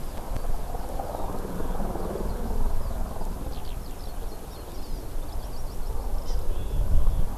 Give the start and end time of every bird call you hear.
2.8s-7.3s: Eurasian Skylark (Alauda arvensis)
3.9s-5.0s: Hawaii Amakihi (Chlorodrepanis virens)
6.2s-6.4s: Hawaii Amakihi (Chlorodrepanis virens)

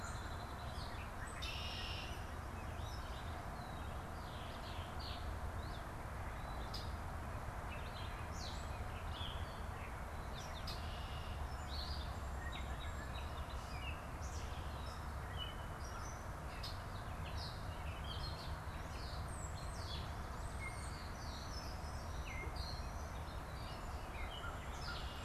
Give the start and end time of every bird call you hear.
0.0s-2.3s: Red-winged Blackbird (Agelaius phoeniceus)
0.0s-25.2s: Gray Catbird (Dumetella carolinensis)
4.2s-6.9s: Red-winged Blackbird (Agelaius phoeniceus)
10.2s-11.6s: Red-winged Blackbird (Agelaius phoeniceus)
19.2s-23.7s: European Starling (Sturnus vulgaris)
24.2s-25.2s: American Crow (Corvus brachyrhynchos)

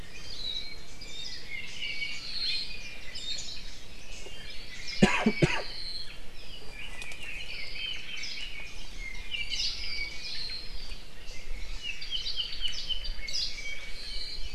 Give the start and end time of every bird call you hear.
1.2s-2.8s: Apapane (Himatione sanguinea)
3.1s-3.6s: Warbling White-eye (Zosterops japonicus)
4.3s-6.2s: Apapane (Himatione sanguinea)
6.6s-8.9s: Red-billed Leiothrix (Leiothrix lutea)
8.9s-10.8s: Apapane (Himatione sanguinea)
9.5s-9.9s: Hawaii Creeper (Loxops mana)
11.3s-14.5s: Apapane (Himatione sanguinea)
13.2s-13.6s: Hawaii Creeper (Loxops mana)

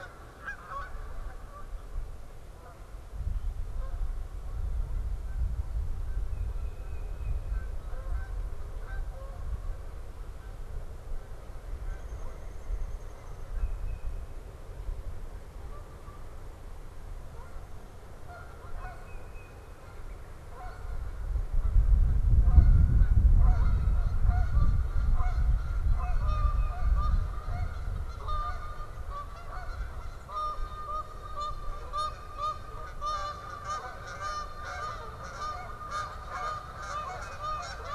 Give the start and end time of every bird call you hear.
0.0s-37.9s: Canada Goose (Branta canadensis)
6.2s-7.8s: Tufted Titmouse (Baeolophus bicolor)
11.7s-13.7s: Downy Woodpecker (Dryobates pubescens)
13.4s-14.3s: Tufted Titmouse (Baeolophus bicolor)
18.6s-19.8s: Tufted Titmouse (Baeolophus bicolor)
25.9s-26.8s: Tufted Titmouse (Baeolophus bicolor)
36.9s-37.9s: Tufted Titmouse (Baeolophus bicolor)

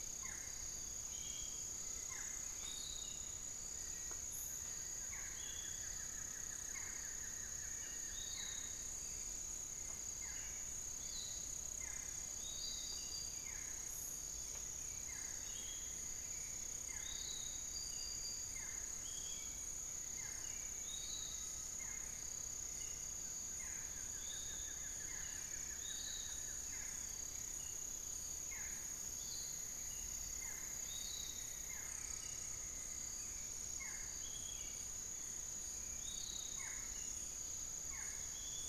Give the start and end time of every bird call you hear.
0.0s-2.3s: Long-winged Antwren (Myrmotherula longipennis)
0.0s-38.7s: Barred Forest-Falcon (Micrastur ruficollis)
0.0s-38.7s: Piratic Flycatcher (Legatus leucophaius)
3.5s-8.0s: Black-faced Antthrush (Formicarius analis)
4.4s-8.6s: Buff-throated Woodcreeper (Xiphorhynchus guttatus)
4.4s-9.0s: Amazonian Pygmy-Owl (Glaucidium hardyi)
14.3s-16.9s: Long-winged Antwren (Myrmotherula longipennis)
21.0s-23.2s: Amazonian Pygmy-Owl (Glaucidium hardyi)
22.6s-28.8s: Long-winged Antwren (Myrmotherula longipennis)
23.1s-27.2s: Buff-throated Woodcreeper (Xiphorhynchus guttatus)
29.2s-33.2s: Cinnamon-throated Woodcreeper (Dendrexetastes rufigula)

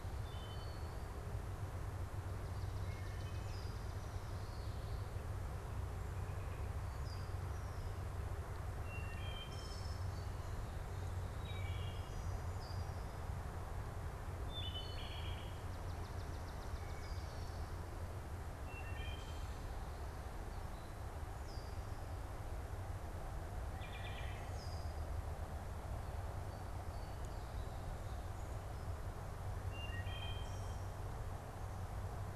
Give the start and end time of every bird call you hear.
0.0s-4.0s: Wood Thrush (Hylocichla mustelina)
8.6s-12.5s: Wood Thrush (Hylocichla mustelina)
13.9s-19.8s: Wood Thrush (Hylocichla mustelina)
15.4s-17.2s: Swamp Sparrow (Melospiza georgiana)
20.3s-21.0s: Eastern Phoebe (Sayornis phoebe)
21.3s-25.3s: unidentified bird
23.7s-24.6s: Wood Thrush (Hylocichla mustelina)
26.3s-28.0s: Song Sparrow (Melospiza melodia)
29.5s-31.1s: Wood Thrush (Hylocichla mustelina)

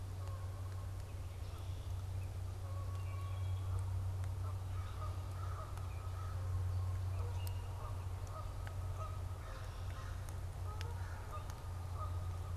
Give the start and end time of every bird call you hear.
0.0s-12.5s: Canada Goose (Branta canadensis)
2.7s-3.7s: Wood Thrush (Hylocichla mustelina)
4.6s-12.5s: American Crow (Corvus brachyrhynchos)
7.2s-7.7s: Common Grackle (Quiscalus quiscula)

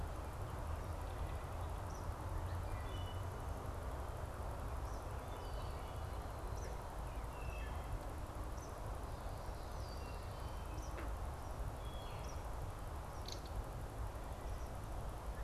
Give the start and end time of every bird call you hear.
1.7s-13.5s: Eastern Kingbird (Tyrannus tyrannus)
2.4s-12.5s: Wood Thrush (Hylocichla mustelina)
13.2s-13.5s: Belted Kingfisher (Megaceryle alcyon)

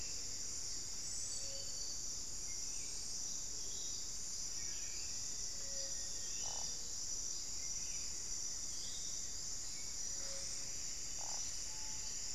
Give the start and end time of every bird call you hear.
0.0s-12.3s: Buff-throated Saltator (Saltator maximus)
4.4s-6.8s: Black-faced Antthrush (Formicarius analis)
7.7s-9.9s: Goeldi's Antbird (Akletos goeldii)
10.1s-12.3s: Plumbeous Antbird (Myrmelastes hyperythrus)
11.6s-12.1s: Screaming Piha (Lipaugus vociferans)

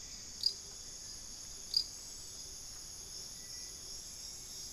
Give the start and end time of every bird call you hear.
0.0s-1.9s: Hauxwell's Thrush (Turdus hauxwelli)
0.2s-4.7s: Gilded Barbet (Capito auratus)
3.2s-4.0s: unidentified bird

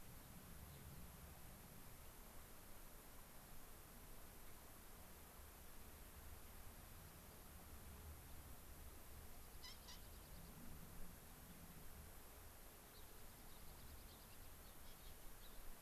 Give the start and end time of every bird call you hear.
0.6s-0.9s: Gray-crowned Rosy-Finch (Leucosticte tephrocotis)
10.0s-10.6s: unidentified bird
12.9s-13.0s: Gray-crowned Rosy-Finch (Leucosticte tephrocotis)
13.1s-14.5s: unidentified bird
14.1s-14.2s: Gray-crowned Rosy-Finch (Leucosticte tephrocotis)
14.6s-14.8s: Gray-crowned Rosy-Finch (Leucosticte tephrocotis)
15.4s-15.5s: Gray-crowned Rosy-Finch (Leucosticte tephrocotis)

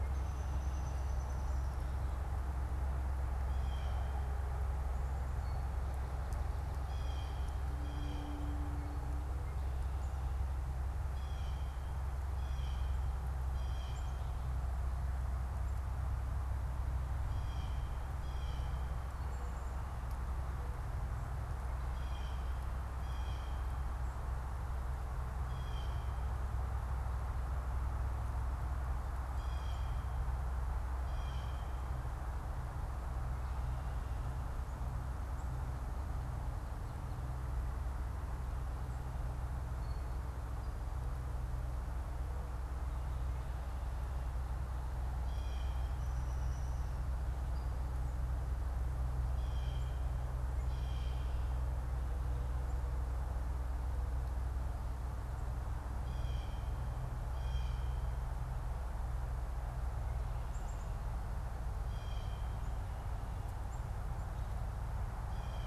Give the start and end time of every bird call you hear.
0.0s-1.8s: Downy Woodpecker (Dryobates pubescens)
3.5s-32.0s: Blue Jay (Cyanocitta cristata)
45.2s-58.3s: Blue Jay (Cyanocitta cristata)
45.5s-46.8s: Downy Woodpecker (Dryobates pubescens)
60.3s-65.7s: Black-capped Chickadee (Poecile atricapillus)

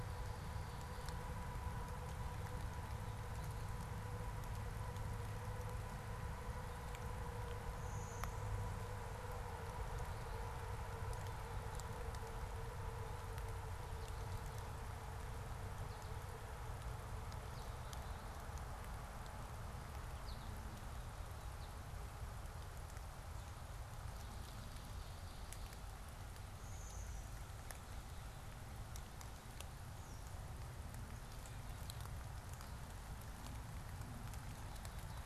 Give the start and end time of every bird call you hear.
7.6s-9.1s: Blue-winged Warbler (Vermivora cyanoptera)
19.8s-22.0s: American Goldfinch (Spinus tristis)
26.4s-27.9s: Blue-winged Warbler (Vermivora cyanoptera)

